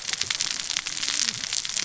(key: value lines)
label: biophony, cascading saw
recorder: SoundTrap 600 or HydroMoth